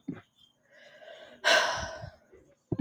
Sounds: Sigh